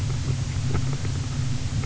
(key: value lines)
label: anthrophony, boat engine
recorder: SoundTrap 300